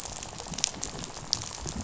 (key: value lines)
label: biophony, rattle
recorder: SoundTrap 500